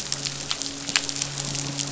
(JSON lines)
{"label": "biophony, midshipman", "recorder": "SoundTrap 500"}